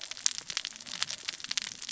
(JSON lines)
{"label": "biophony, cascading saw", "recorder": "SoundTrap 600 or HydroMoth"}